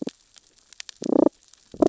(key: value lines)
label: biophony, damselfish
recorder: SoundTrap 600 or HydroMoth